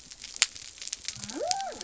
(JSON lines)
{"label": "biophony", "recorder": "SoundTrap 300"}